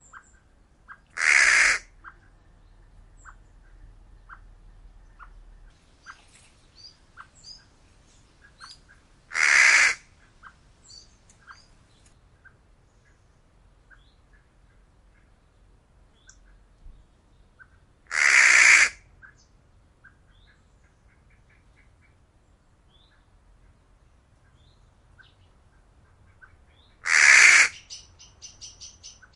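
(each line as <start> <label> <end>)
0.0 A bird chirps periodically in the distance. 1.0
1.0 A crow caws. 1.9
1.9 A bird chirps in the distance. 2.3
3.2 Birds chirp periodically in the distance. 9.3
9.2 A crow caws. 10.1
10.2 Birds chirp periodically in the distance. 17.9
18.0 A crow caws. 19.1
19.1 Birds chirp periodically in the distance. 26.9
19.9 A bird chirps rapidly in a high-pitched tone. 22.5
26.9 A crow caws. 27.8
27.7 A bird chirps rapidly in a high-pitched tone. 29.3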